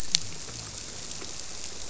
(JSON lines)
{"label": "biophony", "recorder": "SoundTrap 300"}